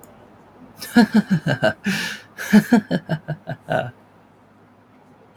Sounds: Laughter